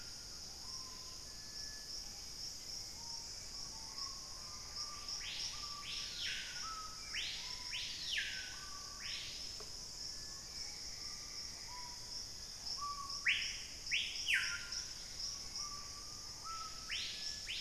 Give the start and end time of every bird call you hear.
[0.00, 1.16] Purple-throated Fruitcrow (Querula purpurata)
[0.00, 17.61] Screaming Piha (Lipaugus vociferans)
[1.86, 8.46] Hauxwell's Thrush (Turdus hauxwelli)
[6.76, 12.36] Buff-throated Woodcreeper (Xiphorhynchus guttatus)
[14.46, 17.61] Dusky-capped Greenlet (Pachysylvia hypoxantha)
[14.56, 17.06] Gray Antbird (Cercomacra cinerascens)

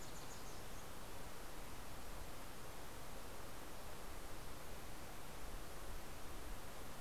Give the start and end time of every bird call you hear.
[0.00, 1.50] Wilson's Warbler (Cardellina pusilla)

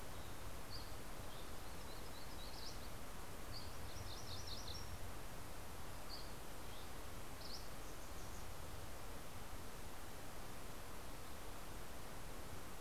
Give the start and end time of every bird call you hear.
[0.26, 1.56] Dusky Flycatcher (Empidonax oberholseri)
[1.36, 3.26] Yellow-rumped Warbler (Setophaga coronata)
[3.16, 3.76] Dusky Flycatcher (Empidonax oberholseri)
[3.76, 5.26] MacGillivray's Warbler (Geothlypis tolmiei)
[5.76, 7.66] Dusky Flycatcher (Empidonax oberholseri)

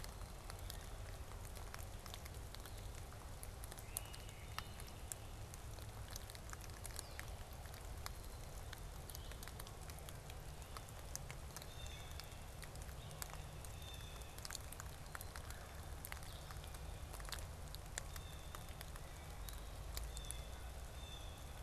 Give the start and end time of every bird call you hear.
[3.52, 4.53] Great Crested Flycatcher (Myiarchus crinitus)
[6.72, 9.72] Blue-headed Vireo (Vireo solitarius)
[11.22, 21.52] Blue Jay (Cyanocitta cristata)
[15.32, 15.82] Red-bellied Woodpecker (Melanerpes carolinus)
[16.23, 16.62] Blue-headed Vireo (Vireo solitarius)
[19.32, 20.02] Blue-headed Vireo (Vireo solitarius)

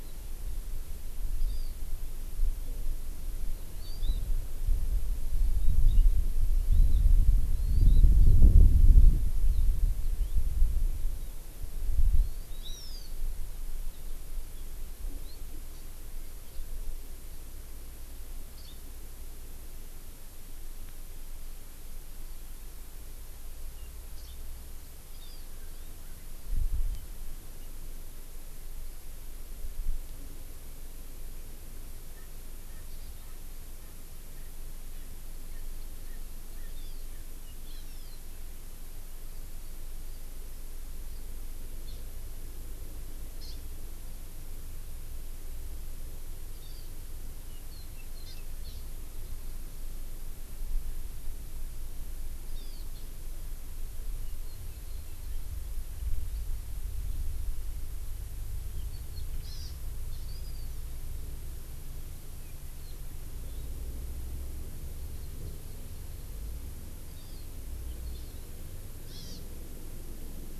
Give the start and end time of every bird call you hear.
[1.48, 1.68] Hawaii Amakihi (Chlorodrepanis virens)
[3.78, 4.18] Hawaii Amakihi (Chlorodrepanis virens)
[7.58, 7.98] Hawaii Amakihi (Chlorodrepanis virens)
[10.08, 10.38] House Finch (Haemorhous mexicanus)
[12.48, 13.08] Hawaii Amakihi (Chlorodrepanis virens)
[18.58, 18.78] Hawaii Amakihi (Chlorodrepanis virens)
[24.18, 24.38] Hawaii Amakihi (Chlorodrepanis virens)
[25.18, 25.48] Hawaii Amakihi (Chlorodrepanis virens)
[32.08, 32.28] Erckel's Francolin (Pternistis erckelii)
[32.68, 32.78] Erckel's Francolin (Pternistis erckelii)
[33.18, 33.38] Erckel's Francolin (Pternistis erckelii)
[34.28, 34.48] Erckel's Francolin (Pternistis erckelii)
[35.48, 35.68] Erckel's Francolin (Pternistis erckelii)
[35.98, 36.18] Erckel's Francolin (Pternistis erckelii)
[36.58, 36.68] Erckel's Francolin (Pternistis erckelii)
[36.68, 36.98] Hawaii Amakihi (Chlorodrepanis virens)
[37.68, 38.18] Hawaii Amakihi (Chlorodrepanis virens)
[41.88, 42.08] Hawaii Amakihi (Chlorodrepanis virens)
[43.38, 43.58] Hawaii Amakihi (Chlorodrepanis virens)
[46.58, 46.88] Hawaii Amakihi (Chlorodrepanis virens)
[48.28, 48.78] Hawaii Amakihi (Chlorodrepanis virens)
[52.58, 52.88] Hawaii Amakihi (Chlorodrepanis virens)
[59.48, 59.68] Hawaii Amakihi (Chlorodrepanis virens)
[60.28, 60.78] Hawaii Amakihi (Chlorodrepanis virens)
[67.18, 67.48] Hawaii Amakihi (Chlorodrepanis virens)
[69.08, 69.38] Hawaii Amakihi (Chlorodrepanis virens)

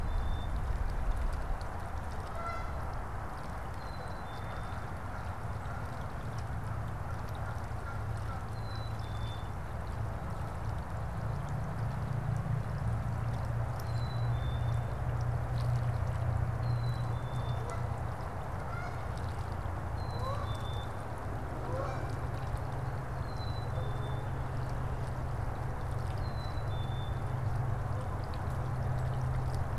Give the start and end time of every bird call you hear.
[0.00, 0.60] Black-capped Chickadee (Poecile atricapillus)
[1.60, 9.60] Canada Goose (Branta canadensis)
[3.60, 4.90] Black-capped Chickadee (Poecile atricapillus)
[8.40, 9.50] Black-capped Chickadee (Poecile atricapillus)
[13.60, 15.00] Black-capped Chickadee (Poecile atricapillus)
[16.40, 17.80] Black-capped Chickadee (Poecile atricapillus)
[17.40, 22.90] Canada Goose (Branta canadensis)
[19.70, 21.00] Black-capped Chickadee (Poecile atricapillus)
[23.10, 24.40] Black-capped Chickadee (Poecile atricapillus)
[26.10, 27.30] Black-capped Chickadee (Poecile atricapillus)

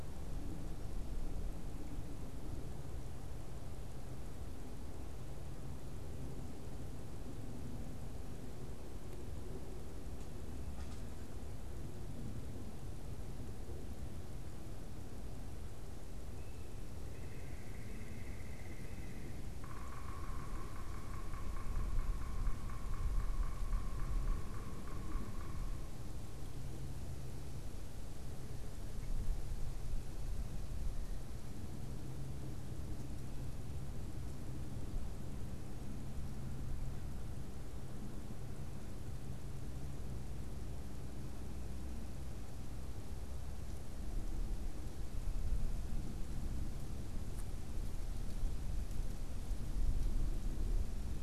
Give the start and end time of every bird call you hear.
[16.96, 19.46] unidentified bird
[19.56, 26.16] Yellow-bellied Sapsucker (Sphyrapicus varius)

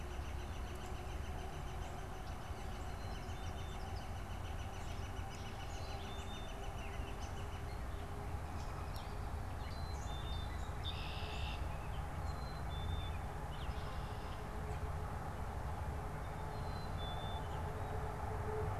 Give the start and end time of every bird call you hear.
[0.00, 7.80] Northern Flicker (Colaptes auratus)
[2.70, 4.00] Black-capped Chickadee (Poecile atricapillus)
[4.20, 10.40] Gray Catbird (Dumetella carolinensis)
[8.00, 9.30] American Robin (Turdus migratorius)
[9.50, 10.60] Black-capped Chickadee (Poecile atricapillus)
[10.40, 11.80] Red-winged Blackbird (Agelaius phoeniceus)
[12.10, 13.40] Black-capped Chickadee (Poecile atricapillus)
[13.60, 14.70] Red-winged Blackbird (Agelaius phoeniceus)
[16.30, 17.70] Black-capped Chickadee (Poecile atricapillus)

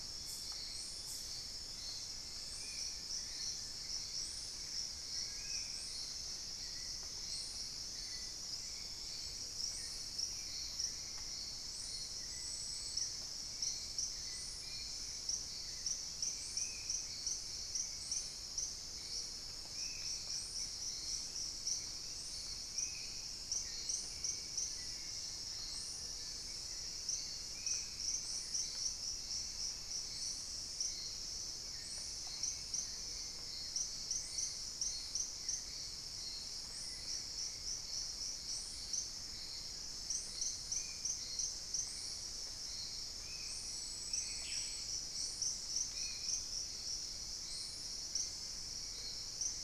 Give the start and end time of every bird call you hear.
[2.12, 4.02] Plain-winged Antshrike (Thamnophilus schistaceus)
[2.42, 5.92] Spot-winged Antshrike (Pygiptila stellaris)
[4.92, 6.02] unidentified bird
[14.52, 28.22] Spot-winged Antshrike (Pygiptila stellaris)
[22.92, 25.32] unidentified bird
[24.62, 26.52] Plain-winged Antshrike (Thamnophilus schistaceus)
[32.82, 33.62] Ruddy Quail-Dove (Geotrygon montana)
[36.32, 45.22] Thrush-like Wren (Campylorhynchus turdinus)
[40.62, 49.64] Spot-winged Antshrike (Pygiptila stellaris)
[43.72, 44.82] Black-spotted Bare-eye (Phlegopsis nigromaculata)

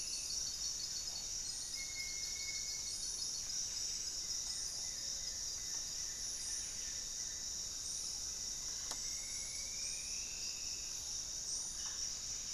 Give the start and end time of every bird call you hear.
[0.00, 7.29] Gray-fronted Dove (Leptotila rufaxilla)
[0.00, 12.54] Amazonian Trogon (Trogon ramonianus)
[0.00, 12.54] Buff-breasted Wren (Cantorchilus leucotis)
[0.00, 12.54] Paradise Tanager (Tangara chilensis)
[1.69, 3.09] Ringed Woodpecker (Celeus torquatus)
[3.99, 7.49] Goeldi's Antbird (Akletos goeldii)
[8.49, 11.09] Striped Woodcreeper (Xiphorhynchus obsoletus)
[8.49, 12.54] Mealy Parrot (Amazona farinosa)

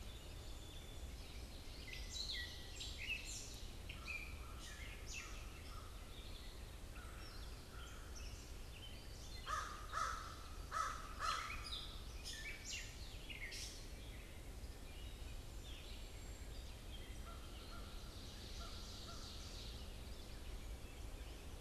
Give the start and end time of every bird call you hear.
[1.19, 5.89] Gray Catbird (Dumetella carolinensis)
[9.29, 12.19] American Crow (Corvus brachyrhynchos)
[10.99, 14.29] Gray Catbird (Dumetella carolinensis)
[17.09, 19.49] American Crow (Corvus brachyrhynchos)
[17.69, 20.29] Ovenbird (Seiurus aurocapilla)

